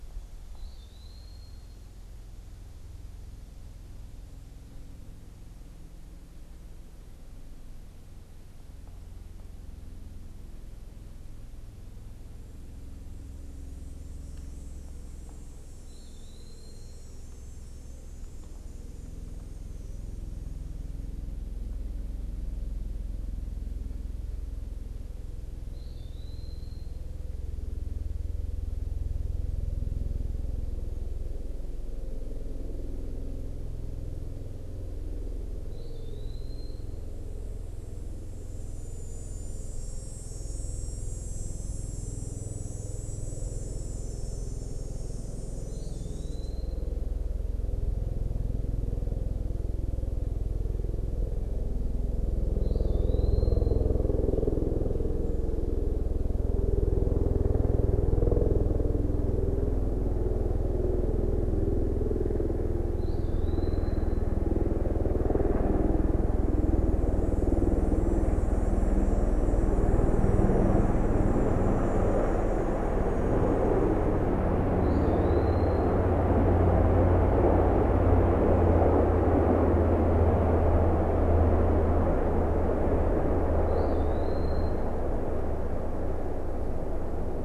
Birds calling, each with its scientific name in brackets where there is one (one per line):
Eastern Wood-Pewee (Contopus virens)